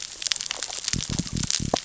{"label": "biophony", "recorder": "SoundTrap 600 or HydroMoth"}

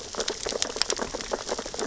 {"label": "biophony, sea urchins (Echinidae)", "recorder": "SoundTrap 600 or HydroMoth"}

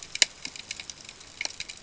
{"label": "ambient", "recorder": "HydroMoth"}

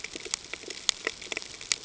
{"label": "ambient", "recorder": "HydroMoth"}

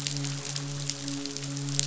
{"label": "biophony, midshipman", "recorder": "SoundTrap 500"}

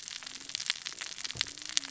{"label": "biophony, cascading saw", "recorder": "SoundTrap 600 or HydroMoth"}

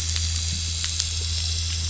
{"label": "anthrophony, boat engine", "recorder": "SoundTrap 500"}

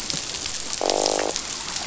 {"label": "biophony, croak", "recorder": "SoundTrap 500"}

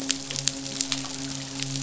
{"label": "biophony, midshipman", "recorder": "SoundTrap 500"}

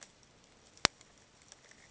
{"label": "ambient", "recorder": "HydroMoth"}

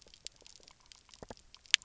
{"label": "biophony", "recorder": "SoundTrap 300"}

